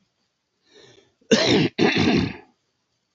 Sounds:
Throat clearing